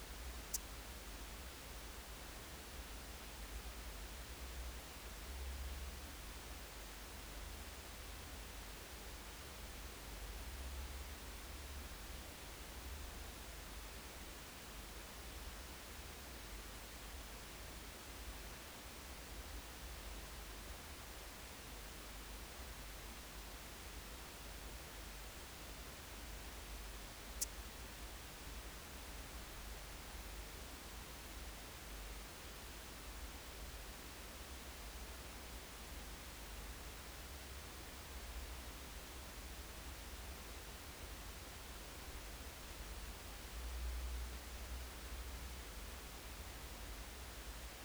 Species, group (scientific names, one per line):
Leptophyes albovittata
Orthoptera